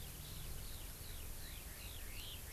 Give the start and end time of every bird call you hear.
0.0s-2.5s: Eurasian Skylark (Alauda arvensis)
1.4s-2.5s: Red-billed Leiothrix (Leiothrix lutea)

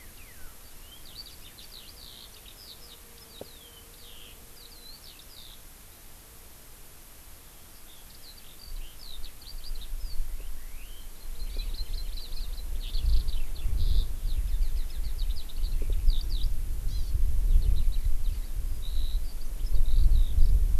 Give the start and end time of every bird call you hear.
0.0s-5.6s: Eurasian Skylark (Alauda arvensis)
7.4s-20.7s: Eurasian Skylark (Alauda arvensis)
11.2s-12.6s: Hawaii Amakihi (Chlorodrepanis virens)
16.8s-17.2s: Hawaii Amakihi (Chlorodrepanis virens)

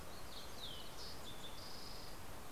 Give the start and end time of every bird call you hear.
0.1s-2.5s: Fox Sparrow (Passerella iliaca)

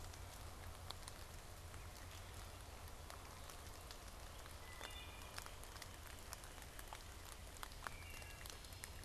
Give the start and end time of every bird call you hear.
4.3s-9.0s: Wood Thrush (Hylocichla mustelina)

